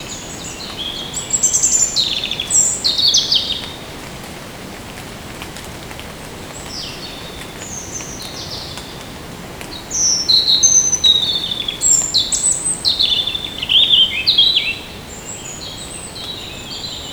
Is anyone talking?
no